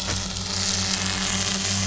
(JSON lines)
{"label": "anthrophony, boat engine", "recorder": "SoundTrap 500"}